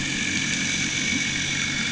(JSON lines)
{"label": "anthrophony, boat engine", "recorder": "HydroMoth"}